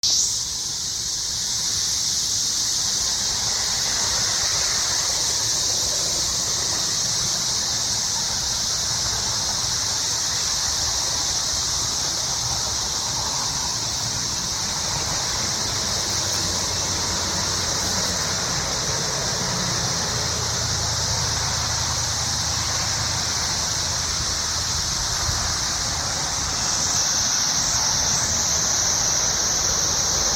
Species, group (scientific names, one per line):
Magicicada tredecassini
Cicadidae